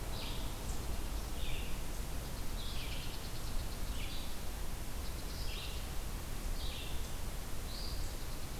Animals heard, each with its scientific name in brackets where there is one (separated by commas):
unknown mammal, Red-eyed Vireo (Vireo olivaceus)